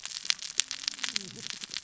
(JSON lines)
{"label": "biophony, cascading saw", "recorder": "SoundTrap 600 or HydroMoth"}